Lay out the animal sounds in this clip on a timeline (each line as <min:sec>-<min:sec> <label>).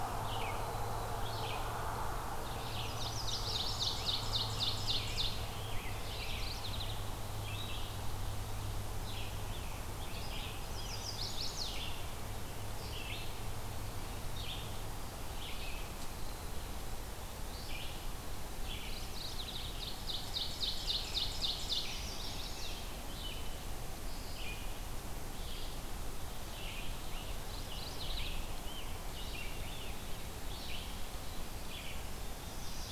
0:00.0-0:27.1 Red-eyed Vireo (Vireo olivaceus)
0:02.4-0:04.0 Chestnut-sided Warbler (Setophaga pensylvanica)
0:02.9-0:05.5 Ovenbird (Seiurus aurocapilla)
0:03.0-0:06.6 Scarlet Tanager (Piranga olivacea)
0:05.8-0:07.0 Mourning Warbler (Geothlypis philadelphia)
0:09.2-0:11.7 Scarlet Tanager (Piranga olivacea)
0:10.6-0:11.8 Chestnut-sided Warbler (Setophaga pensylvanica)
0:18.8-0:19.9 Mourning Warbler (Geothlypis philadelphia)
0:19.4-0:22.1 Ovenbird (Seiurus aurocapilla)
0:20.9-0:23.5 Scarlet Tanager (Piranga olivacea)
0:21.6-0:23.1 Chestnut-sided Warbler (Setophaga pensylvanica)
0:26.4-0:30.2 Scarlet Tanager (Piranga olivacea)
0:27.4-0:28.4 Mourning Warbler (Geothlypis philadelphia)
0:28.1-0:32.9 Red-eyed Vireo (Vireo olivaceus)
0:32.4-0:32.9 Chestnut-sided Warbler (Setophaga pensylvanica)